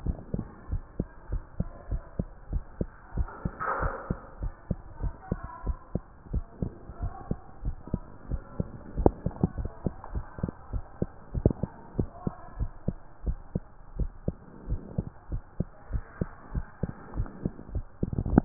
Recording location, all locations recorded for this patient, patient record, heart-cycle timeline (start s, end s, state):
mitral valve (MV)
aortic valve (AV)+pulmonary valve (PV)+tricuspid valve (TV)+mitral valve (MV)
#Age: Child
#Sex: Male
#Height: 130.0 cm
#Weight: 30.4 kg
#Pregnancy status: False
#Murmur: Absent
#Murmur locations: nan
#Most audible location: nan
#Systolic murmur timing: nan
#Systolic murmur shape: nan
#Systolic murmur grading: nan
#Systolic murmur pitch: nan
#Systolic murmur quality: nan
#Diastolic murmur timing: nan
#Diastolic murmur shape: nan
#Diastolic murmur grading: nan
#Diastolic murmur pitch: nan
#Diastolic murmur quality: nan
#Outcome: Abnormal
#Campaign: 2015 screening campaign
0.00	0.46	unannotated
0.46	0.68	diastole
0.68	0.84	S1
0.84	0.96	systole
0.96	1.08	S2
1.08	1.30	diastole
1.30	1.42	S1
1.42	1.56	systole
1.56	1.68	S2
1.68	1.90	diastole
1.90	2.04	S1
2.04	2.18	systole
2.18	2.30	S2
2.30	2.50	diastole
2.50	2.66	S1
2.66	2.78	systole
2.78	2.88	S2
2.88	3.14	diastole
3.14	3.28	S1
3.28	3.44	systole
3.44	3.54	S2
3.54	3.78	diastole
3.78	3.92	S1
3.92	4.06	systole
4.06	4.18	S2
4.18	4.40	diastole
4.40	4.52	S1
4.52	4.66	systole
4.66	4.78	S2
4.78	5.00	diastole
5.00	5.14	S1
5.14	5.30	systole
5.30	5.42	S2
5.42	5.64	diastole
5.64	5.78	S1
5.78	5.94	systole
5.94	6.02	S2
6.02	6.30	diastole
6.30	6.46	S1
6.46	6.60	systole
6.60	6.74	S2
6.74	7.00	diastole
7.00	7.14	S1
7.14	7.28	systole
7.28	7.38	S2
7.38	7.64	diastole
7.64	7.76	S1
7.76	7.92	systole
7.92	8.04	S2
8.04	8.28	diastole
8.28	8.42	S1
8.42	8.58	systole
8.58	8.70	S2
8.70	8.96	diastole
8.96	9.14	S1
9.14	9.24	systole
9.24	9.34	S2
9.34	9.56	diastole
9.56	9.72	S1
9.72	9.84	systole
9.84	9.94	S2
9.94	10.12	diastole
10.12	10.24	S1
10.24	10.38	systole
10.38	10.48	S2
10.48	10.70	diastole
10.70	10.84	S1
10.84	10.98	systole
10.98	11.10	S2
11.10	11.34	diastole
11.34	11.52	S1
11.52	11.62	systole
11.62	11.72	S2
11.72	11.96	diastole
11.96	12.10	S1
12.10	12.22	systole
12.22	12.34	S2
12.34	12.56	diastole
12.56	12.70	S1
12.70	12.84	systole
12.84	12.98	S2
12.98	13.24	diastole
13.24	13.40	S1
13.40	13.54	systole
13.54	13.64	S2
13.64	13.92	diastole
13.92	14.08	S1
14.08	14.24	systole
14.24	14.38	S2
14.38	14.66	diastole
14.66	14.82	S1
14.82	14.94	systole
14.94	15.06	S2
15.06	15.32	diastole
15.32	15.44	S1
15.44	15.56	systole
15.56	15.70	S2
15.70	15.90	diastole
15.90	16.06	S1
16.06	16.20	systole
16.20	16.30	S2
16.30	16.52	diastole
16.52	16.64	S1
16.64	16.82	systole
16.82	16.94	S2
16.94	17.14	diastole
17.14	17.28	S1
17.28	17.42	systole
17.42	17.52	S2
17.52	17.72	diastole
17.72	17.86	S1
17.86	18.02	systole
18.02	18.12	S2
18.12	18.30	diastole
18.30	18.45	unannotated